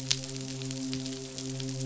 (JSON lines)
{"label": "biophony, midshipman", "recorder": "SoundTrap 500"}